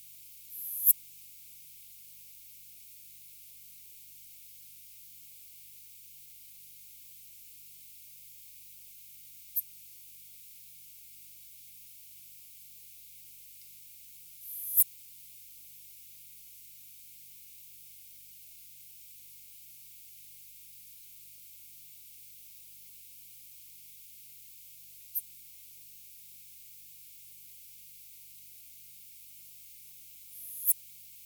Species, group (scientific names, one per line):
Poecilimon affinis
Orthoptera